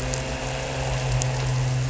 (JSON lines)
{"label": "anthrophony, boat engine", "recorder": "SoundTrap 300"}